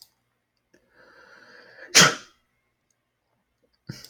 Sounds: Sneeze